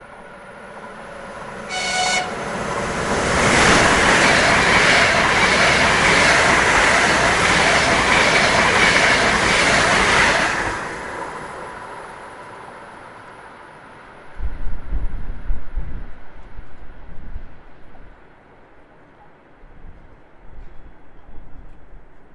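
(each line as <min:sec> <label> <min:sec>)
0:01.9 A loud warning signal of a train. 0:03.0
0:03.7 Train wheels rolling over the tracks produce a loud, echoing sound that gradually fades as the train moves away. 0:10.8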